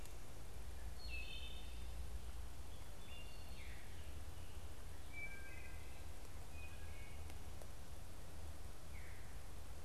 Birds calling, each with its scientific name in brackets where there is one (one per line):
Wood Thrush (Hylocichla mustelina)
Veery (Catharus fuscescens)